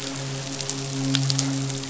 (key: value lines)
label: biophony, midshipman
recorder: SoundTrap 500